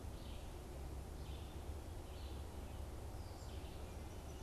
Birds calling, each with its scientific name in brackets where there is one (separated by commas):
Red-eyed Vireo (Vireo olivaceus)